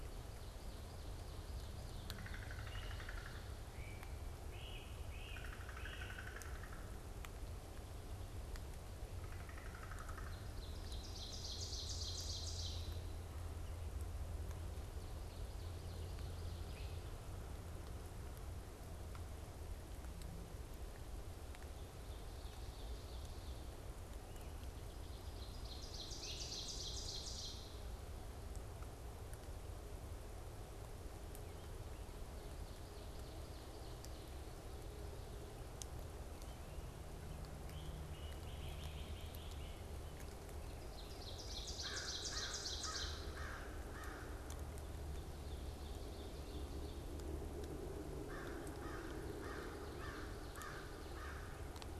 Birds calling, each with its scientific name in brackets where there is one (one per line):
Ovenbird (Seiurus aurocapilla)
American Crow (Corvus brachyrhynchos)
Great Crested Flycatcher (Myiarchus crinitus)